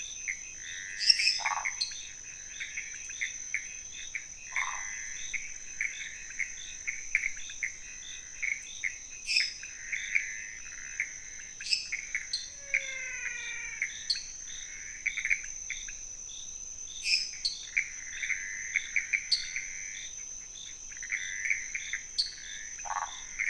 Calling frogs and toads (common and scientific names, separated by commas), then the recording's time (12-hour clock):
pointedbelly frog (Leptodactylus podicipinus), Pithecopus azureus, lesser tree frog (Dendropsophus minutus), waxy monkey tree frog (Phyllomedusa sauvagii), dwarf tree frog (Dendropsophus nanus), menwig frog (Physalaemus albonotatus)
1:15am